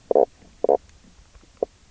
{"label": "biophony, knock croak", "recorder": "SoundTrap 300"}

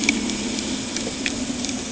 {"label": "anthrophony, boat engine", "recorder": "HydroMoth"}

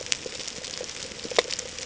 {"label": "ambient", "recorder": "HydroMoth"}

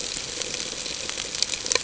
{"label": "ambient", "recorder": "HydroMoth"}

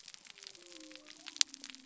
{"label": "biophony", "recorder": "SoundTrap 300"}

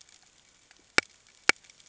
{"label": "ambient", "recorder": "HydroMoth"}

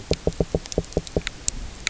{"label": "biophony, knock", "recorder": "SoundTrap 300"}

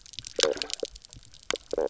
{"label": "biophony, knock croak", "recorder": "SoundTrap 300"}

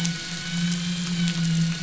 {"label": "anthrophony, boat engine", "recorder": "SoundTrap 500"}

